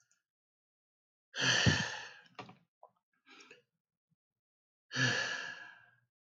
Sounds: Sigh